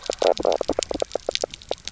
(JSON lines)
{"label": "biophony, knock croak", "recorder": "SoundTrap 300"}